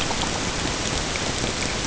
{"label": "ambient", "recorder": "HydroMoth"}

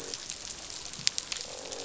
{"label": "biophony, croak", "recorder": "SoundTrap 500"}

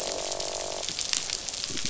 {"label": "biophony, croak", "recorder": "SoundTrap 500"}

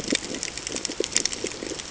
{"label": "ambient", "recorder": "HydroMoth"}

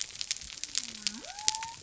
{"label": "biophony", "recorder": "SoundTrap 300"}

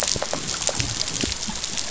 {"label": "biophony", "recorder": "SoundTrap 500"}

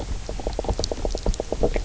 {"label": "biophony, knock croak", "recorder": "SoundTrap 300"}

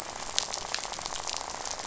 {"label": "biophony, rattle", "recorder": "SoundTrap 500"}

